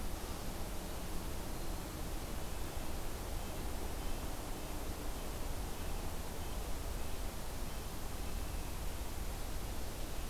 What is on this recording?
Red-breasted Nuthatch